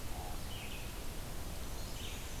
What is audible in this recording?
Red-eyed Vireo, Black-and-white Warbler